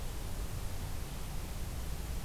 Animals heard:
forest ambience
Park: Marsh-Billings-Rockefeller National Historical Park